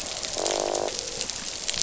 {"label": "biophony, croak", "recorder": "SoundTrap 500"}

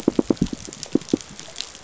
{"label": "biophony, pulse", "recorder": "SoundTrap 500"}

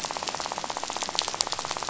{"label": "biophony, rattle", "recorder": "SoundTrap 500"}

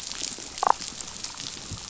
{"label": "biophony, damselfish", "recorder": "SoundTrap 500"}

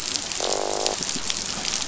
{"label": "biophony, croak", "recorder": "SoundTrap 500"}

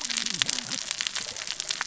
{"label": "biophony, cascading saw", "recorder": "SoundTrap 600 or HydroMoth"}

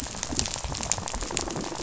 {"label": "biophony, rattle", "recorder": "SoundTrap 500"}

